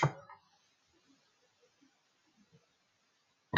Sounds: Sniff